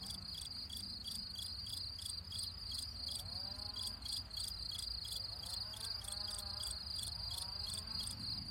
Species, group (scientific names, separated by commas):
Gryllus campestris, Orthoptera